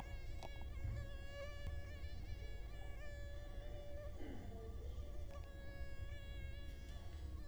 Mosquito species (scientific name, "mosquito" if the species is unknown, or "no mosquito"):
Culex quinquefasciatus